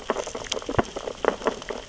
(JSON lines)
{"label": "biophony, sea urchins (Echinidae)", "recorder": "SoundTrap 600 or HydroMoth"}